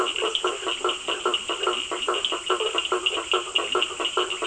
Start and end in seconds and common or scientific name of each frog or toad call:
0.0	4.4	blacksmith tree frog
0.0	4.4	Cochran's lime tree frog
0.7	2.1	Leptodactylus latrans